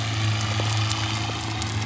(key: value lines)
label: biophony
recorder: SoundTrap 300